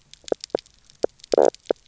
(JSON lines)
{"label": "biophony, knock croak", "recorder": "SoundTrap 300"}